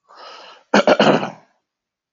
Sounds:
Throat clearing